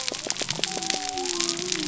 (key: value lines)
label: biophony
recorder: SoundTrap 300